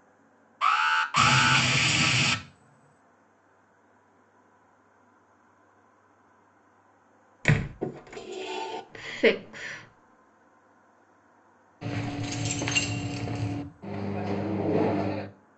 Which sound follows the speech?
keys jangling